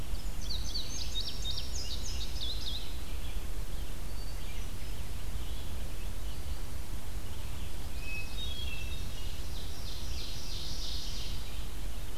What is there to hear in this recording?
Indigo Bunting, Red-eyed Vireo, Hermit Thrush, Ovenbird